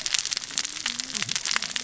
{"label": "biophony, cascading saw", "recorder": "SoundTrap 600 or HydroMoth"}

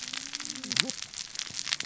{"label": "biophony, cascading saw", "recorder": "SoundTrap 600 or HydroMoth"}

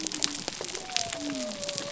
{"label": "biophony", "recorder": "SoundTrap 300"}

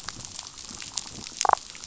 {"label": "biophony, damselfish", "recorder": "SoundTrap 500"}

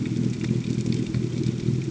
{"label": "ambient", "recorder": "HydroMoth"}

